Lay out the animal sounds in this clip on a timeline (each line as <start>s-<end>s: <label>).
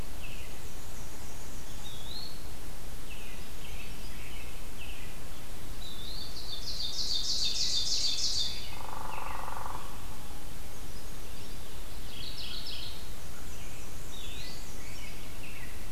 0.0s-0.8s: American Robin (Turdus migratorius)
0.0s-2.0s: Black-and-white Warbler (Mniotilta varia)
1.6s-2.9s: Eastern Wood-Pewee (Contopus virens)
2.8s-5.6s: American Robin (Turdus migratorius)
2.9s-4.3s: Brown Creeper (Certhia americana)
5.8s-8.9s: Ovenbird (Seiurus aurocapilla)
7.3s-9.7s: American Robin (Turdus migratorius)
8.4s-10.2s: Hairy Woodpecker (Dryobates villosus)
10.5s-11.7s: Brown Creeper (Certhia americana)
11.8s-13.1s: Mourning Warbler (Geothlypis philadelphia)
12.5s-13.5s: American Crow (Corvus brachyrhynchos)
12.7s-15.2s: Black-and-white Warbler (Mniotilta varia)
13.3s-15.9s: American Robin (Turdus migratorius)
14.0s-14.7s: Eastern Wood-Pewee (Contopus virens)